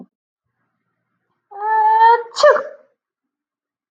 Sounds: Sneeze